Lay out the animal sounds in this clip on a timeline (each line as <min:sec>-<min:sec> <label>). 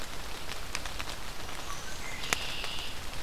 0:01.6-0:03.1 Red-winged Blackbird (Agelaius phoeniceus)